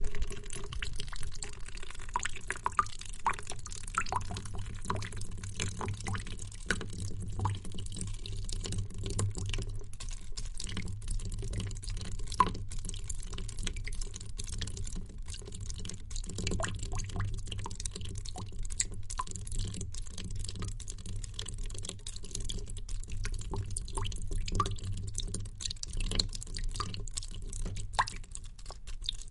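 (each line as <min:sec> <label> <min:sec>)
0:00.0 Very soft dripping sounds. 0:29.3
0:00.0 Water dripping and splashing. 0:29.3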